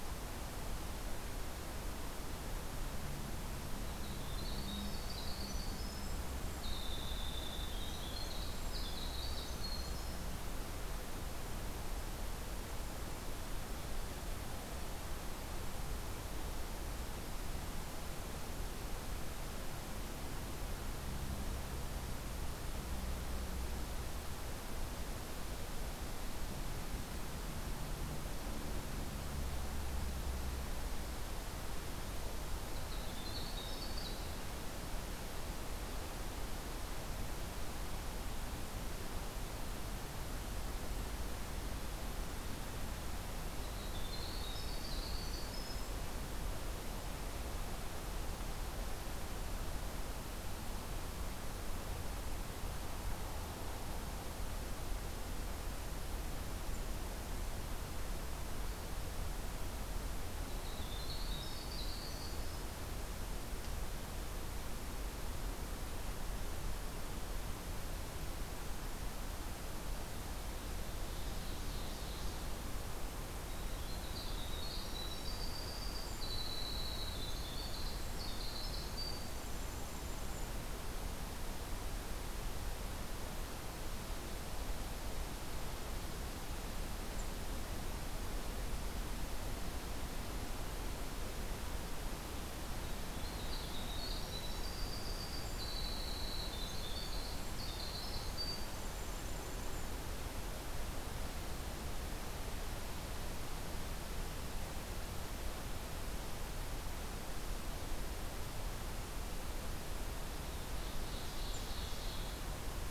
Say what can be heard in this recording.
Winter Wren, Ovenbird